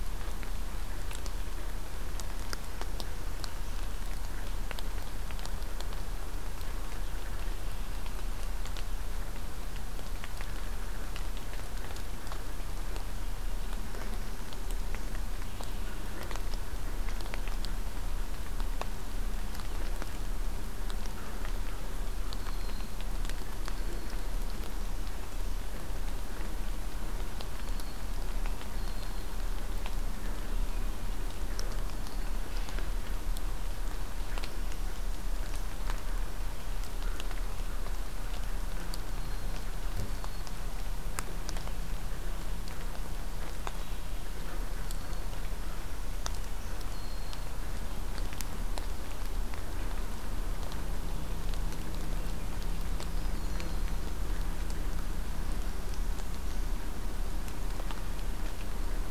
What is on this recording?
American Crow, Red-winged Blackbird, Northern Parula, Hermit Thrush